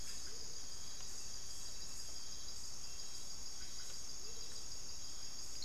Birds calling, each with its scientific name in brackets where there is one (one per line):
Amazonian Motmot (Momotus momota)
unidentified bird